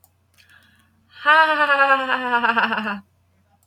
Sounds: Laughter